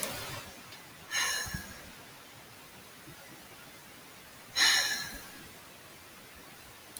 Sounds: Sigh